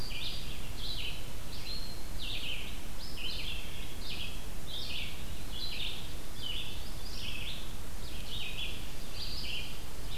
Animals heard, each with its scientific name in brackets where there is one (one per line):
Red-eyed Vireo (Vireo olivaceus)